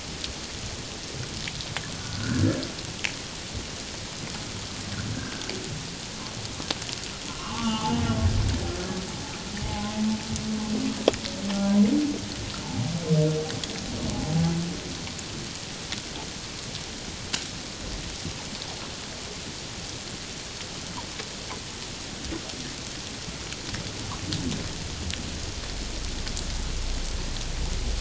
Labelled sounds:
2.0	2.4	humpback whale, 1.3 to 1.8 kHz
7.3	8.0	humpback whale, 0.81 to 3.6 kHz
9.6	10.0	humpback whale, 0.78 to 0.91 kHz

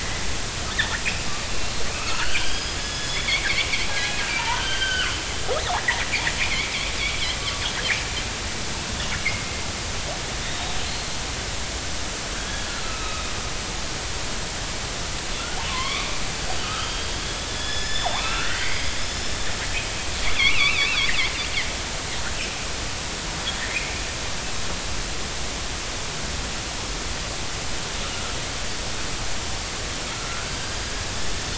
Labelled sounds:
1.9	4.1	killer whale, northern resident, 1.2 to 5.2 kHz
4.4	5.1	killer whale, northern resident, 0.86 to 3.3 kHz
5.8	6.1	killer whale, northern resident, 1.6 to 2.2 kHz
9.2	9.6	killer whale, northern resident, 2.0 to 2.4 kHz
10.4	10.7	killer whale, northern resident, 3.6 to 3.8 kHz
12.3	13.3	killer whale, northern resident, 1.2 to 3.5 kHz
15.7	16.1	killer whale, northern resident, 0.96 to 3.7 kHz
16.6	17.1	killer whale, northern resident, 1.2 to 3.3 kHz
17.5	21.1	killer whale, northern resident, 1.2 to 7.0 kHz
30.1	30.9	killer whale, northern resident, 1.2 to 4.9 kHz

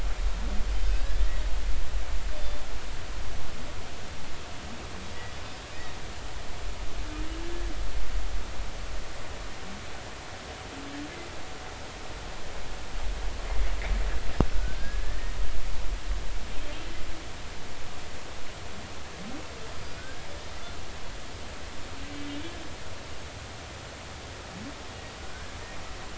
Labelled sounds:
0.7	1.4	humpback whale, 1.5 to 4.8 kHz
14.8	15.3	humpback whale, 1.5 to 1.9 kHz
19.7	20.0	humpback whale, 4.7 to 5.0 kHz

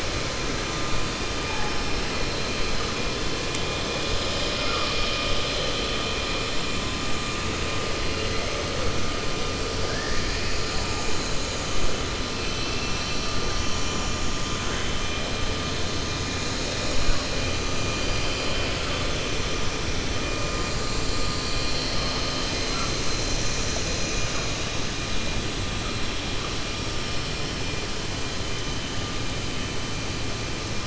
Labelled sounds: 9.8	10.4	killer whale, 0.65 to 2.6 kHz

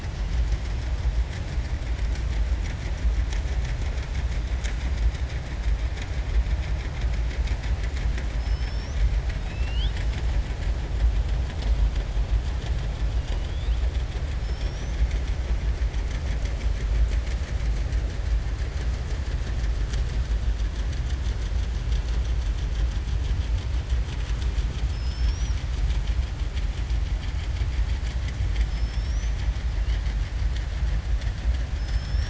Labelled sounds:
8.3	9.0	killer whale, southern resident, 4.6 to 6.2 kHz

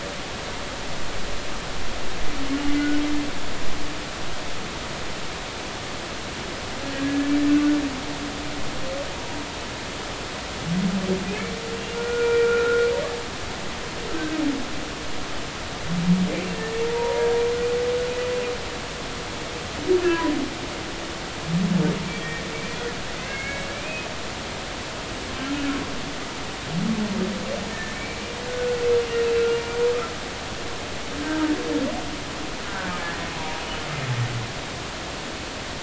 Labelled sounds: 2.7	3.0	humpback whale, 1.4 to 1.5 kHz
6.8	7.3	humpback whale, 1.6 to 1.8 kHz
11.9	12.9	humpback whale, 1.3 to 2.4 kHz
16.9	17.3	humpback whale, 0.86 to 0.99 kHz
22.2	24.1	humpback whale, 1.6 to 2.7 kHz
27.7	28.0	humpback whale, 1.7 to 1.9 kHz
29.5	29.8	humpback whale, 1.4 to 1.6 kHz
31.2	31.4	humpback whale, 1.5 to 1.6 kHz

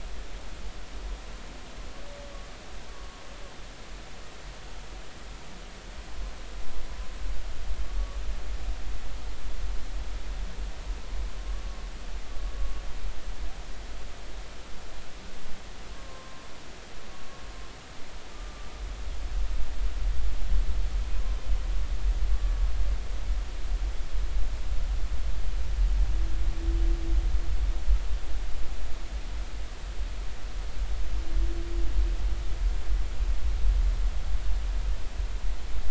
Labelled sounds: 2.9	3.2	humpback whale, 0.93 to 1.2 kHz
11.5	11.8	humpback whale, 1.1 to 1.2 kHz
15.9	16.4	humpback whale, 0.99 to 1.1 kHz
18.3	18.7	humpback whale, 1.1 to 1.2 kHz

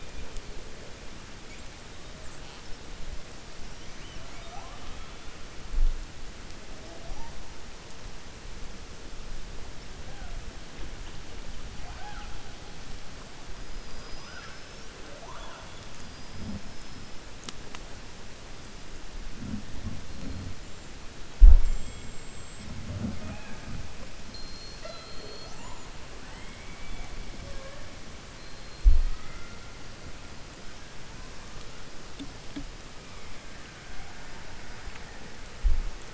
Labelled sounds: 21.5	22.7	killer whale, 7.3 to 7.9 kHz
26.2	27.1	killer whale, 0.87 to 3.5 kHz

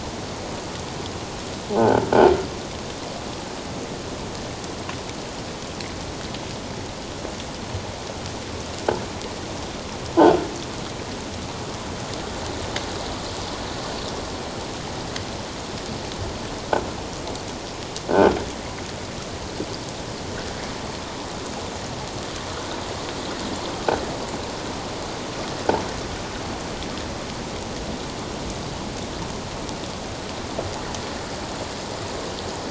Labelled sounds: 10.2	10.4	croaking sound likely from a nearby submerged object, 1.4 to 1.6 kHz

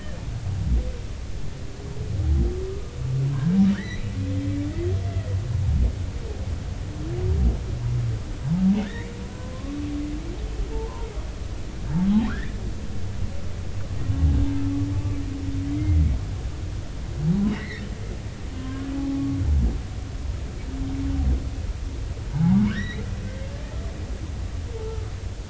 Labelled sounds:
3.3	4.1	humpback whale, 1.4 to 4.2 kHz
8.8	9.8	humpback whale, 0.96 to 2.4 kHz
10.7	11.1	humpback whale, 0.83 to 1.1 kHz
12.3	12.6	humpback whale, 1.3 to 2.0 kHz
15.6	16.0	humpback whale, 1.9 to 2.2 kHz
18.5	19.3	humpback whale, 0.80 to 2.2 kHz
22.3	23.1	humpback whale, 0.80 to 6.0 kHz

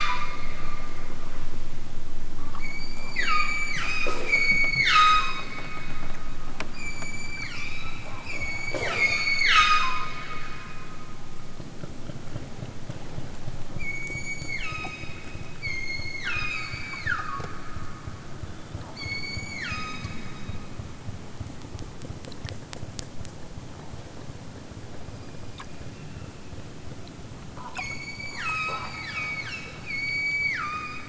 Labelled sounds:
2.6	5.4	killer whale, southern Alaska resident, 0.78 to 8.0 kHz
6.7	10.1	killer whale, southern Alaska resident, 0.69 to 8.0 kHz
13.7	15.1	killer whale, southern Alaska resident, 0.87 to 8.0 kHz
15.6	17.5	killer whale, southern Alaska resident, 0.87 to 8.0 kHz
18.9	20.3	killer whale, southern Alaska resident, 0.92 to 8.0 kHz
27.7	31.0	killer whale, southern Alaska resident, 0.87 to 8.0 kHz

